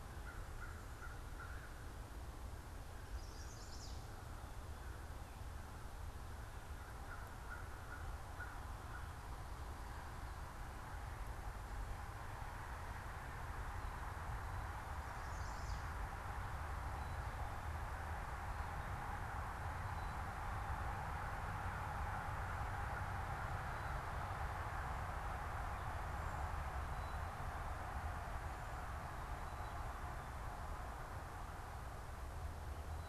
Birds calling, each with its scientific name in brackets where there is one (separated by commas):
Black-capped Chickadee (Poecile atricapillus), American Crow (Corvus brachyrhynchos), Chestnut-sided Warbler (Setophaga pensylvanica)